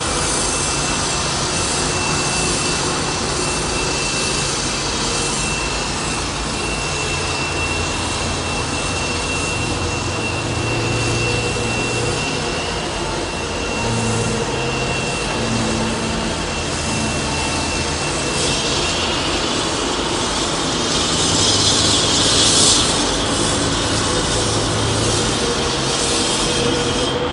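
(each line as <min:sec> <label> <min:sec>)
0:00.0 Ambient sounds of traffic and construction on a city street. 0:27.3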